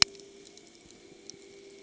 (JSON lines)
{"label": "anthrophony, boat engine", "recorder": "HydroMoth"}